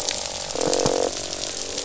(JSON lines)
{"label": "biophony, croak", "recorder": "SoundTrap 500"}